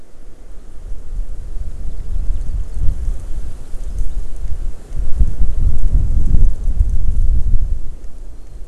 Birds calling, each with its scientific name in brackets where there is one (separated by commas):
Warbling White-eye (Zosterops japonicus), Hawaii Amakihi (Chlorodrepanis virens)